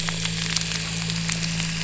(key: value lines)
label: anthrophony, boat engine
recorder: SoundTrap 300